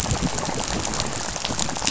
{"label": "biophony, rattle", "recorder": "SoundTrap 500"}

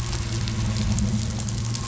{"label": "anthrophony, boat engine", "recorder": "SoundTrap 500"}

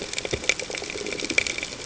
{"label": "ambient", "recorder": "HydroMoth"}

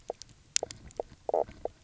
{"label": "biophony, knock croak", "recorder": "SoundTrap 300"}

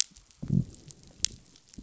{"label": "biophony, growl", "recorder": "SoundTrap 500"}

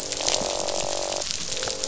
{"label": "biophony, croak", "recorder": "SoundTrap 500"}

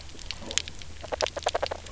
{"label": "biophony, knock croak", "recorder": "SoundTrap 300"}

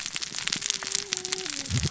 {"label": "biophony, cascading saw", "recorder": "SoundTrap 600 or HydroMoth"}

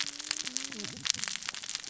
{"label": "biophony, cascading saw", "recorder": "SoundTrap 600 or HydroMoth"}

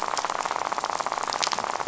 {"label": "biophony, rattle", "recorder": "SoundTrap 500"}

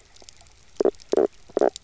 {"label": "biophony, knock croak", "recorder": "SoundTrap 300"}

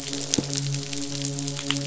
{"label": "biophony, midshipman", "recorder": "SoundTrap 500"}
{"label": "biophony, croak", "recorder": "SoundTrap 500"}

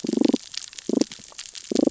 {"label": "biophony, damselfish", "recorder": "SoundTrap 600 or HydroMoth"}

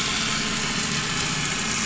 {"label": "anthrophony, boat engine", "recorder": "SoundTrap 500"}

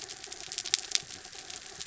{"label": "anthrophony, mechanical", "recorder": "SoundTrap 300"}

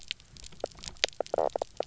{"label": "biophony, knock croak", "recorder": "SoundTrap 300"}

